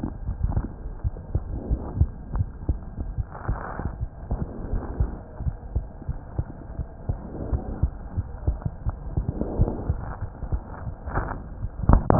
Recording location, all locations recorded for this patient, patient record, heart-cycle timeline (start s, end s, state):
aortic valve (AV)
aortic valve (AV)+pulmonary valve (PV)+tricuspid valve (TV)+mitral valve (MV)
#Age: Child
#Sex: Female
#Height: 108.0 cm
#Weight: 17.2 kg
#Pregnancy status: False
#Murmur: Absent
#Murmur locations: nan
#Most audible location: nan
#Systolic murmur timing: nan
#Systolic murmur shape: nan
#Systolic murmur grading: nan
#Systolic murmur pitch: nan
#Systolic murmur quality: nan
#Diastolic murmur timing: nan
#Diastolic murmur shape: nan
#Diastolic murmur grading: nan
#Diastolic murmur pitch: nan
#Diastolic murmur quality: nan
#Outcome: Abnormal
#Campaign: 2015 screening campaign
0.00	1.02	unannotated
1.02	1.14	S1
1.14	1.30	systole
1.30	1.44	S2
1.44	1.68	diastole
1.68	1.80	S1
1.80	1.96	systole
1.96	2.10	S2
2.10	2.34	diastole
2.34	2.50	S1
2.50	2.66	systole
2.66	2.80	S2
2.80	3.14	diastole
3.14	3.26	S1
3.26	3.46	systole
3.46	3.60	S2
3.60	3.94	diastole
3.94	4.08	S1
4.08	4.28	systole
4.28	4.40	S2
4.40	4.70	diastole
4.70	4.84	S1
4.84	4.98	systole
4.98	5.10	S2
5.10	5.42	diastole
5.42	5.56	S1
5.56	5.72	systole
5.72	5.84	S2
5.84	6.07	diastole
6.07	6.16	S1
6.16	6.34	systole
6.34	6.46	S2
6.46	6.76	diastole
6.76	6.86	S1
6.86	7.08	systole
7.08	7.20	S2
7.20	7.48	diastole
7.48	7.62	S1
7.62	7.81	systole
7.81	7.94	S2
7.94	8.14	diastole
8.14	8.26	S1
8.26	8.44	systole
8.44	8.58	S2
8.58	8.84	diastole
8.84	8.98	S1
8.98	9.14	systole
9.14	9.26	S2
9.26	9.58	diastole
9.58	9.68	S1
9.68	9.85	systole
9.85	9.98	S2
9.98	12.19	unannotated